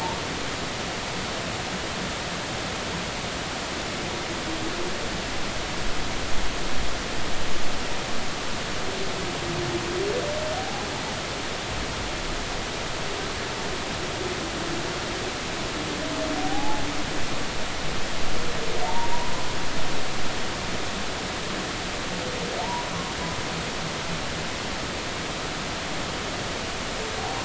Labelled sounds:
10.6	10.9	humpback whale, 0.80 to 0.86 kHz
16.4	16.8	humpback whale, 0.80 to 0.93 kHz
18.8	19.3	humpback whale, 0.86 to 1.1 kHz
22.6	22.9	humpback whale, 0.86 to 1.0 kHz

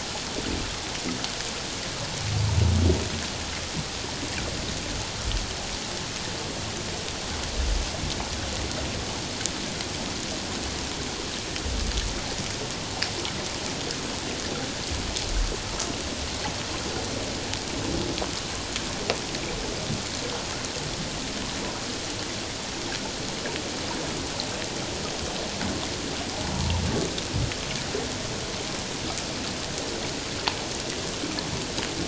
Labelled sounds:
26.5	26.8	humpback whale, 0.88 to 1.0 kHz

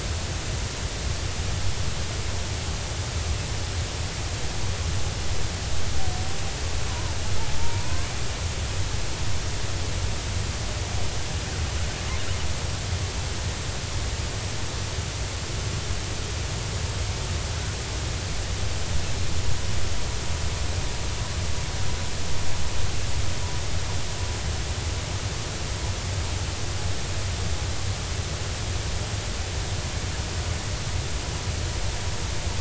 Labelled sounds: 6.9	8.1	killer whale, 0.83 to 1.1 kHz

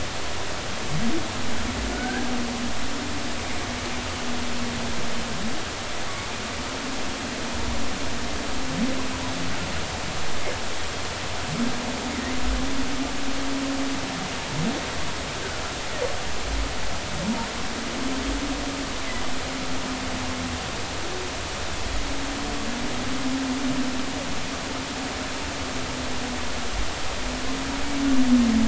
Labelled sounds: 1.9	2.3	humpback whale, 1.4 to 1.7 kHz

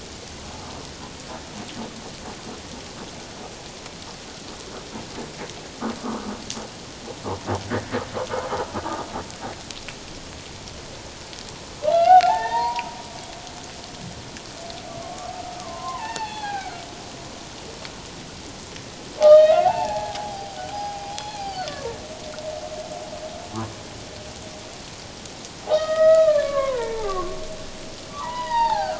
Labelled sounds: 11.9	12.9	humpback whale, 0.78 to 4.8 kHz
15.0	16.8	humpback whale, 0.78 to 4.5 kHz
19.2	21.7	humpback whale, 0.78 to 4.8 kHz
25.7	27.4	humpback whale, 0.78 to 3.8 kHz
28.1	28.9	humpback whale, 0.78 to 5.0 kHz

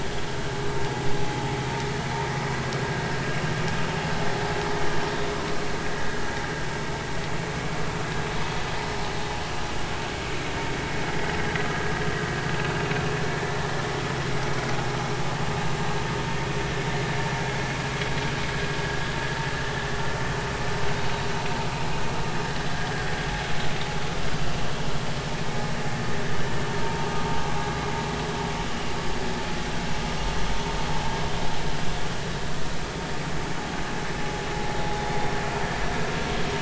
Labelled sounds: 3.2	3.5	vessel noise, 2.6 to 2.9 kHz
26.8	27.1	vessel noise, 0.86 to 0.96 kHz

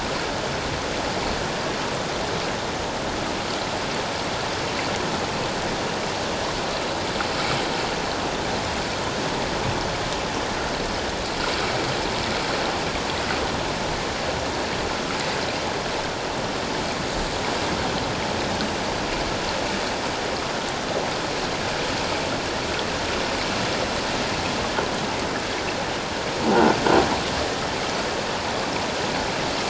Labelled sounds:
26.5	26.8	croaking sound likely from a nearby submerged object, 1.4 to 1.5 kHz

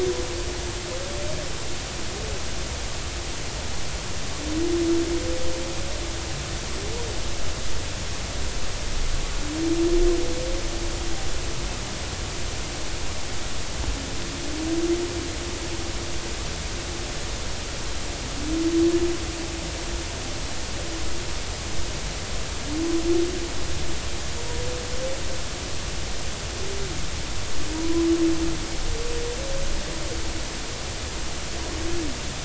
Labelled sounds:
27.7	28.1	humpback whale, 0.90 to 1.1 kHz

